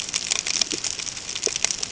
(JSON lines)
{"label": "ambient", "recorder": "HydroMoth"}